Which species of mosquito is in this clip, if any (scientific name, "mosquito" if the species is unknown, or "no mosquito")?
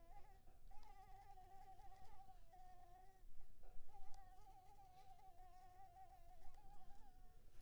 Anopheles maculipalpis